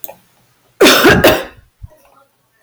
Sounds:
Cough